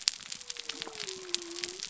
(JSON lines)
{"label": "biophony", "recorder": "SoundTrap 300"}